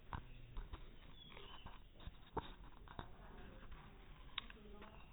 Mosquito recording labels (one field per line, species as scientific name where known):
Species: no mosquito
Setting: cup